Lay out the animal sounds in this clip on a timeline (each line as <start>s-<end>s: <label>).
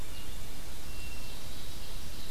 0.0s-1.9s: Hermit Thrush (Catharus guttatus)
0.0s-2.3s: Blue-headed Vireo (Vireo solitarius)
0.0s-2.3s: Ovenbird (Seiurus aurocapilla)